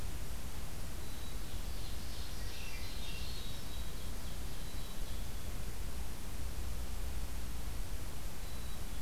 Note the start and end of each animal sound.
0.9s-1.9s: Black-capped Chickadee (Poecile atricapillus)
1.5s-5.2s: Ovenbird (Seiurus aurocapilla)
2.3s-3.8s: Swainson's Thrush (Catharus ustulatus)
4.6s-5.6s: Black-capped Chickadee (Poecile atricapillus)
8.5s-9.0s: Black-capped Chickadee (Poecile atricapillus)

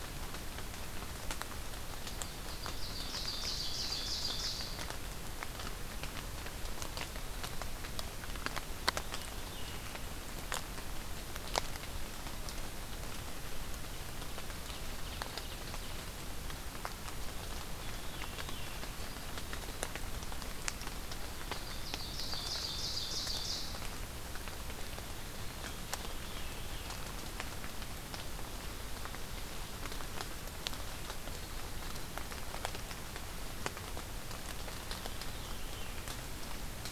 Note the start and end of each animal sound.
2.2s-4.9s: Ovenbird (Seiurus aurocapilla)
14.4s-15.8s: Ovenbird (Seiurus aurocapilla)
17.6s-18.9s: Veery (Catharus fuscescens)
21.3s-23.8s: Ovenbird (Seiurus aurocapilla)
25.8s-26.9s: Veery (Catharus fuscescens)
35.0s-36.0s: Veery (Catharus fuscescens)

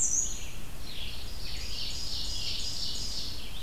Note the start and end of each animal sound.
0.0s-0.5s: Black-and-white Warbler (Mniotilta varia)
0.0s-1.9s: Red-eyed Vireo (Vireo olivaceus)
1.2s-3.4s: Ovenbird (Seiurus aurocapilla)

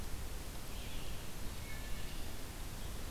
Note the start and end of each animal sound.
0.0s-3.1s: Eastern Chipmunk (Tamias striatus)
0.0s-3.1s: Red-eyed Vireo (Vireo olivaceus)
1.5s-2.4s: Wood Thrush (Hylocichla mustelina)

